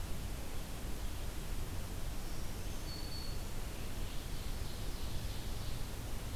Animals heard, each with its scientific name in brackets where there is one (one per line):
Black-throated Green Warbler (Setophaga virens)
Ovenbird (Seiurus aurocapilla)